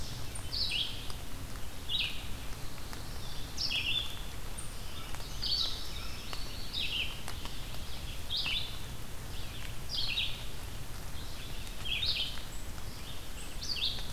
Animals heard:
Red-eyed Vireo (Vireo olivaceus), Ovenbird (Seiurus aurocapilla), Indigo Bunting (Passerina cyanea), Black-throated Blue Warbler (Setophaga caerulescens)

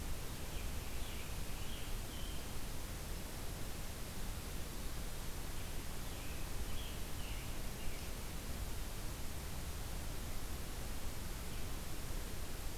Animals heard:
Scarlet Tanager (Piranga olivacea)

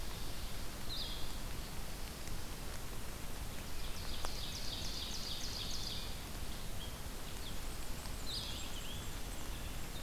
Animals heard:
Blue-headed Vireo (Vireo solitarius), Ovenbird (Seiurus aurocapilla), Black-and-white Warbler (Mniotilta varia)

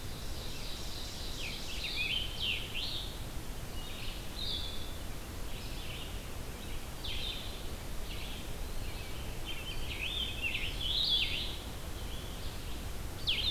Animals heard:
Ovenbird (Seiurus aurocapilla), Blue-headed Vireo (Vireo solitarius), Red-eyed Vireo (Vireo olivaceus), Eastern Wood-Pewee (Contopus virens), Scarlet Tanager (Piranga olivacea)

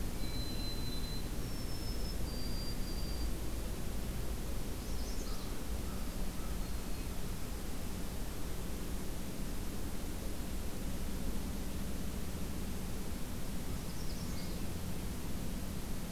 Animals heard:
American Crow (Corvus brachyrhynchos), White-throated Sparrow (Zonotrichia albicollis), Hermit Thrush (Catharus guttatus), Magnolia Warbler (Setophaga magnolia), Black-throated Green Warbler (Setophaga virens)

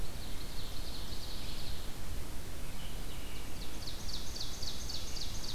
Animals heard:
Ovenbird (Seiurus aurocapilla), American Robin (Turdus migratorius)

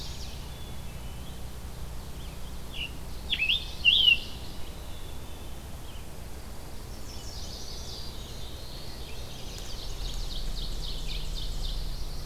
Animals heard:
Scarlet Tanager (Piranga olivacea), Black-throated Green Warbler (Setophaga virens), Chestnut-sided Warbler (Setophaga pensylvanica), Pine Warbler (Setophaga pinus), Black-throated Blue Warbler (Setophaga caerulescens), Mourning Warbler (Geothlypis philadelphia), Black-capped Chickadee (Poecile atricapillus), Ovenbird (Seiurus aurocapilla), Red-eyed Vireo (Vireo olivaceus)

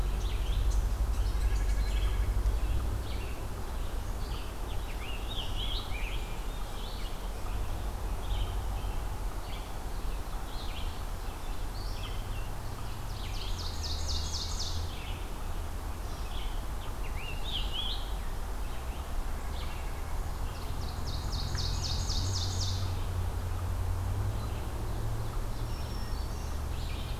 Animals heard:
Ovenbird (Seiurus aurocapilla), White-breasted Nuthatch (Sitta carolinensis), Scarlet Tanager (Piranga olivacea), Black-throated Green Warbler (Setophaga virens), Red-eyed Vireo (Vireo olivaceus)

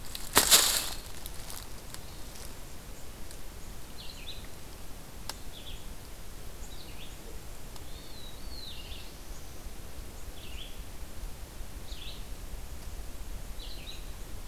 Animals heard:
Red-eyed Vireo (Vireo olivaceus), Black-throated Blue Warbler (Setophaga caerulescens)

